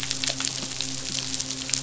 {"label": "biophony, midshipman", "recorder": "SoundTrap 500"}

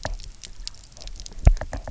{"label": "biophony, knock", "recorder": "SoundTrap 300"}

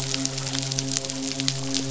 {"label": "biophony, midshipman", "recorder": "SoundTrap 500"}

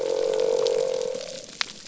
{"label": "biophony", "recorder": "SoundTrap 300"}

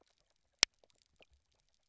{"label": "biophony, knock croak", "recorder": "SoundTrap 300"}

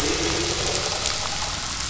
{"label": "anthrophony, boat engine", "recorder": "SoundTrap 500"}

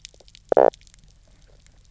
{"label": "biophony, knock croak", "recorder": "SoundTrap 300"}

